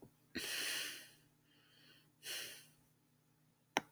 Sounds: Sigh